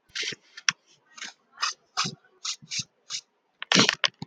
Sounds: Sniff